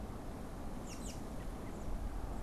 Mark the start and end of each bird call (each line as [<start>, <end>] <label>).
[0.54, 2.24] American Robin (Turdus migratorius)